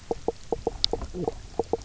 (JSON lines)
{"label": "biophony, knock croak", "recorder": "SoundTrap 300"}